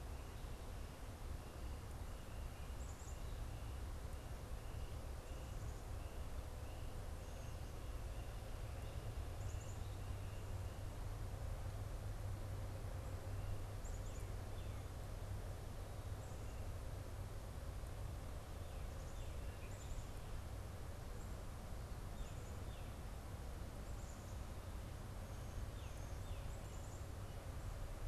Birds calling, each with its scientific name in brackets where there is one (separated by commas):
Black-capped Chickadee (Poecile atricapillus), Tufted Titmouse (Baeolophus bicolor)